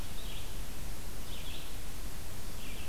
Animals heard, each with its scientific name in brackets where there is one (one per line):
Red-eyed Vireo (Vireo olivaceus)